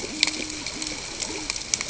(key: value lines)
label: ambient
recorder: HydroMoth